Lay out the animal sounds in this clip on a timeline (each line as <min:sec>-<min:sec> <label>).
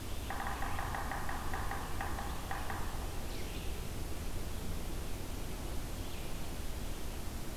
0:00.0-0:06.3 Red-eyed Vireo (Vireo olivaceus)
0:00.1-0:03.2 Yellow-bellied Sapsucker (Sphyrapicus varius)